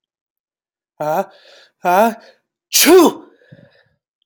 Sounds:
Sneeze